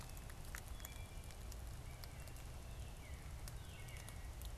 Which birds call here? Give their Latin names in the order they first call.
Hylocichla mustelina, Cardinalis cardinalis